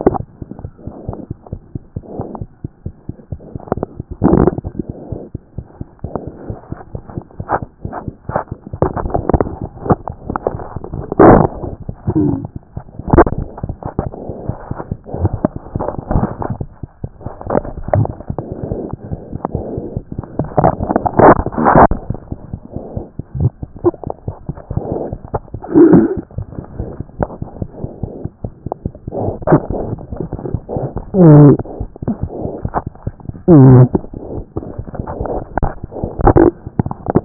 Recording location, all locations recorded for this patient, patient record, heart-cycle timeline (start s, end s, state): mitral valve (MV)
aortic valve (AV)+mitral valve (MV)+mitral valve (MV)
#Age: Child
#Sex: Male
#Height: 79.0 cm
#Weight: 12.7 kg
#Pregnancy status: False
#Murmur: Absent
#Murmur locations: nan
#Most audible location: nan
#Systolic murmur timing: nan
#Systolic murmur shape: nan
#Systolic murmur grading: nan
#Systolic murmur pitch: nan
#Systolic murmur quality: nan
#Diastolic murmur timing: nan
#Diastolic murmur shape: nan
#Diastolic murmur grading: nan
#Diastolic murmur pitch: nan
#Diastolic murmur quality: nan
#Outcome: Normal
#Campaign: 2014 screening campaign
0.00	1.60	unannotated
1.60	1.76	diastole
1.76	1.78	S1
1.78	1.96	systole
1.96	2.00	S2
2.00	2.19	diastole
2.19	2.27	S1
2.27	2.41	systole
2.41	2.46	S2
2.46	2.64	diastole
2.64	2.68	S1
2.68	2.86	systole
2.86	2.90	S2
2.90	3.08	diastole
3.08	3.13	S1
3.13	3.31	systole
3.31	3.37	S2
3.37	3.54	diastole
3.54	3.59	S1
3.59	3.77	systole
3.77	3.83	S2
3.83	3.97	diastole
3.97	37.25	unannotated